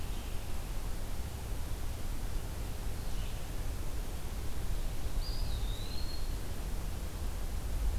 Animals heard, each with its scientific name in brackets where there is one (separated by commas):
Red-eyed Vireo (Vireo olivaceus), Eastern Wood-Pewee (Contopus virens)